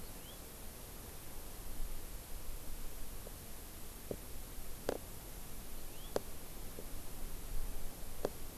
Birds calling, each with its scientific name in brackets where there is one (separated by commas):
House Finch (Haemorhous mexicanus)